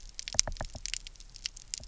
{"label": "biophony, knock", "recorder": "SoundTrap 300"}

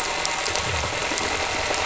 {"label": "anthrophony, boat engine", "recorder": "SoundTrap 300"}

